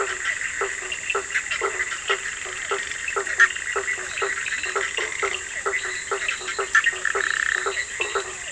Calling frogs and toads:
Boana bischoffi (Hylidae), Boana faber (Hylidae), Sphaenorhynchus surdus (Hylidae), Boana leptolineata (Hylidae), Physalaemus cuvieri (Leptodactylidae), Boana prasina (Hylidae)
Brazil, 10:30pm

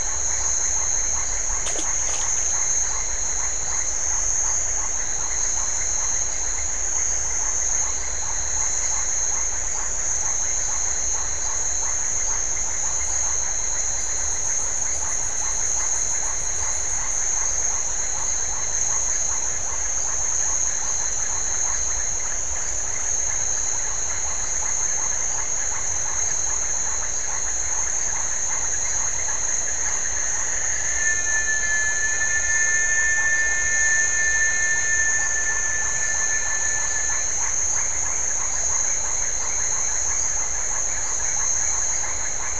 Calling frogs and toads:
Leptodactylus notoaktites (Leptodactylidae)
Atlantic Forest, 7:30pm

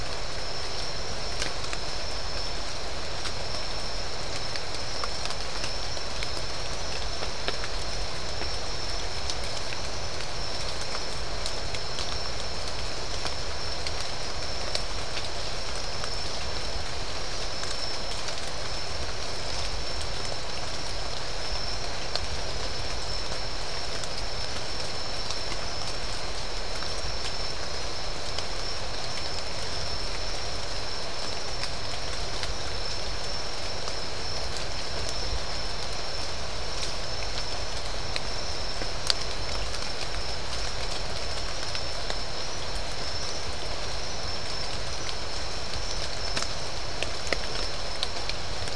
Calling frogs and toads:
none
Atlantic Forest, ~10pm

